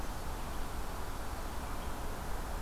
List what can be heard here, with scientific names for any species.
forest ambience